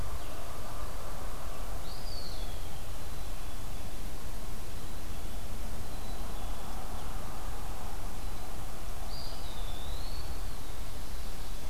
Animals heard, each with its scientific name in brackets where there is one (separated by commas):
Eastern Wood-Pewee (Contopus virens), Black-capped Chickadee (Poecile atricapillus)